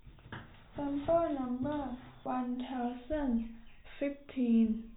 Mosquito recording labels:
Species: no mosquito; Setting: cup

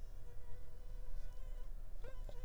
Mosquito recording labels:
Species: Anopheles arabiensis; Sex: female; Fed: unfed; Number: one; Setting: cup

